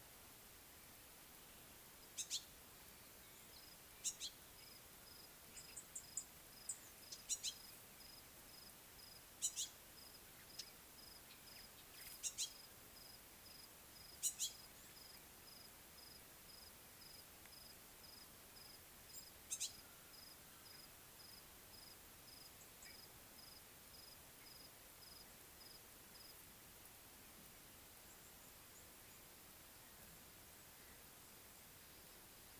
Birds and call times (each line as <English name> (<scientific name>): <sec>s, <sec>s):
Purple Grenadier (Granatina ianthinogaster): 6.2s
Yellow-spotted Bush Sparrow (Gymnoris pyrgita): 7.4s, 19.6s